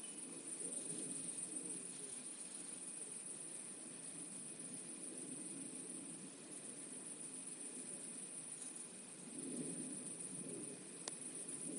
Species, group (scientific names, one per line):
Tettigonia viridissima
Orthoptera